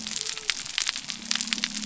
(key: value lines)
label: biophony
recorder: SoundTrap 300